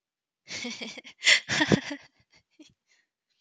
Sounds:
Laughter